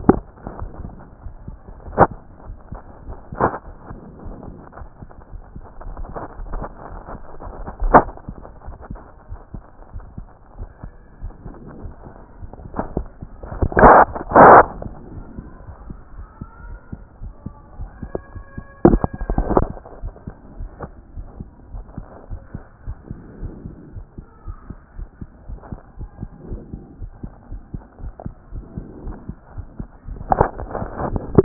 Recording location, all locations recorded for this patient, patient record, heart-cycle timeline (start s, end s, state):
aortic valve (AV)
aortic valve (AV)+pulmonary valve (PV)+tricuspid valve (TV)+mitral valve (MV)
#Age: Adolescent
#Sex: Male
#Height: 143.0 cm
#Weight: 40.4 kg
#Pregnancy status: False
#Murmur: Absent
#Murmur locations: nan
#Most audible location: nan
#Systolic murmur timing: nan
#Systolic murmur shape: nan
#Systolic murmur grading: nan
#Systolic murmur pitch: nan
#Systolic murmur quality: nan
#Diastolic murmur timing: nan
#Diastolic murmur shape: nan
#Diastolic murmur grading: nan
#Diastolic murmur pitch: nan
#Diastolic murmur quality: nan
#Outcome: Normal
#Campaign: 2014 screening campaign
0.00	20.02	unannotated
20.02	20.14	S1
20.14	20.26	systole
20.26	20.34	S2
20.34	20.58	diastole
20.58	20.70	S1
20.70	20.82	systole
20.82	20.92	S2
20.92	21.16	diastole
21.16	21.26	S1
21.26	21.38	systole
21.38	21.48	S2
21.48	21.72	diastole
21.72	21.84	S1
21.84	21.96	systole
21.96	22.06	S2
22.06	22.30	diastole
22.30	22.40	S1
22.40	22.54	systole
22.54	22.64	S2
22.64	22.86	diastole
22.86	22.96	S1
22.96	23.10	systole
23.10	23.18	S2
23.18	23.40	diastole
23.40	23.52	S1
23.52	23.66	systole
23.66	23.74	S2
23.74	23.94	diastole
23.94	24.04	S1
24.04	24.18	systole
24.18	24.26	S2
24.26	24.46	diastole
24.46	24.56	S1
24.56	24.68	systole
24.68	24.78	S2
24.78	24.98	diastole
24.98	25.08	S1
25.08	25.20	systole
25.20	25.30	S2
25.30	25.48	diastole
25.48	25.60	S1
25.60	25.70	systole
25.70	25.80	S2
25.80	25.98	diastole
25.98	26.10	S1
26.10	26.20	systole
26.20	26.30	S2
26.30	26.48	diastole
26.48	26.60	S1
26.60	26.72	systole
26.72	26.82	S2
26.82	27.00	diastole
27.00	27.10	S1
27.10	27.22	systole
27.22	27.32	S2
27.32	27.50	diastole
27.50	27.62	S1
27.62	27.74	systole
27.74	27.82	S2
27.82	28.02	diastole
28.02	28.12	S1
28.12	28.24	systole
28.24	28.34	S2
28.34	28.52	diastole
28.52	28.64	S1
28.64	28.76	systole
28.76	28.84	S2
28.84	29.04	diastole
29.04	29.16	S1
29.16	29.28	systole
29.28	29.38	S2
29.38	29.56	diastole
29.56	29.66	S1
29.66	29.78	systole
29.78	29.88	S2
29.88	30.07	diastole
30.07	31.44	unannotated